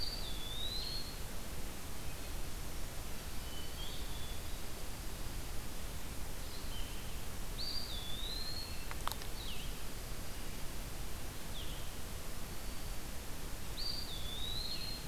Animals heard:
Hermit Thrush (Catharus guttatus)
Eastern Wood-Pewee (Contopus virens)
Dark-eyed Junco (Junco hyemalis)
Black-throated Green Warbler (Setophaga virens)
Blue-headed Vireo (Vireo solitarius)

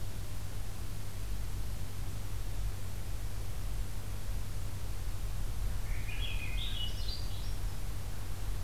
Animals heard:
Swainson's Thrush (Catharus ustulatus)

